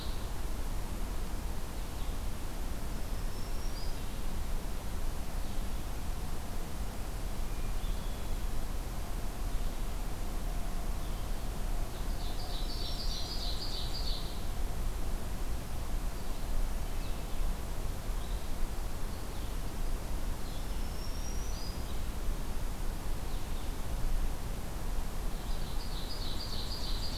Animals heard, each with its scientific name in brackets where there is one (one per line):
Black-throated Green Warbler (Setophaga virens)
Red-eyed Vireo (Vireo olivaceus)
Ovenbird (Seiurus aurocapilla)